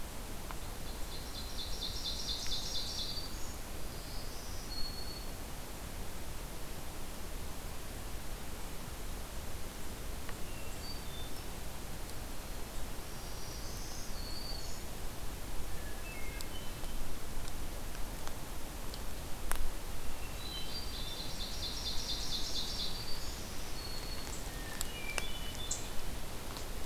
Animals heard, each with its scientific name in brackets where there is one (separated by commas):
Ovenbird (Seiurus aurocapilla), Black-throated Green Warbler (Setophaga virens), Hermit Thrush (Catharus guttatus)